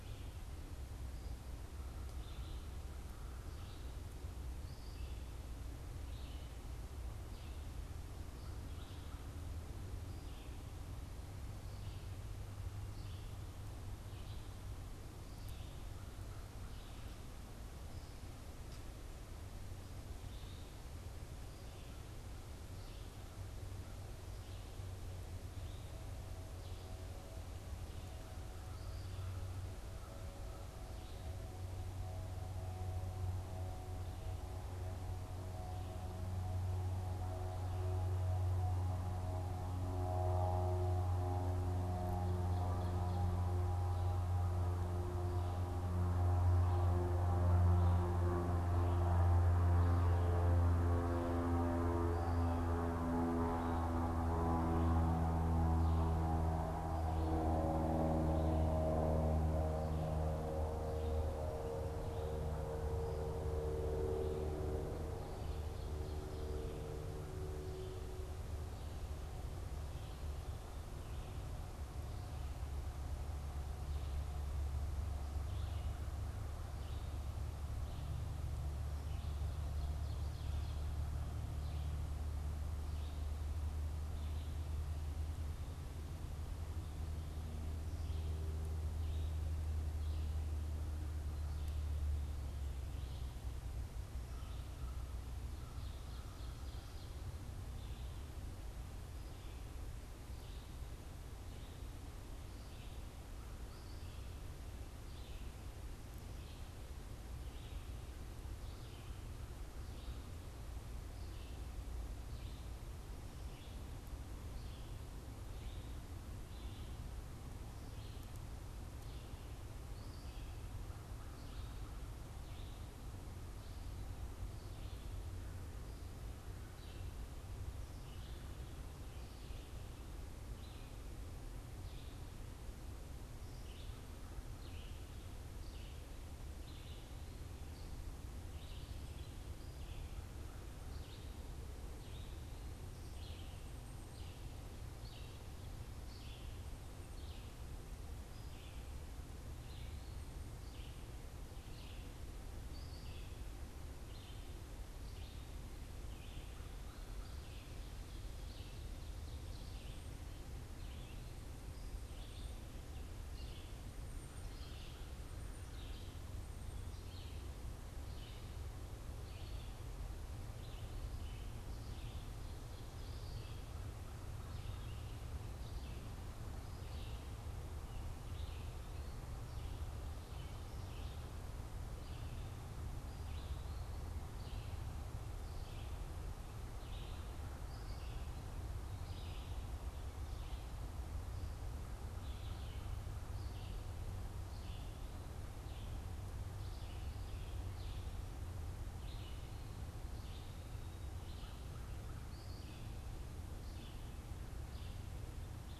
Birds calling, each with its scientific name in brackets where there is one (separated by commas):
Red-eyed Vireo (Vireo olivaceus), Black-capped Chickadee (Poecile atricapillus), Ovenbird (Seiurus aurocapilla), American Crow (Corvus brachyrhynchos)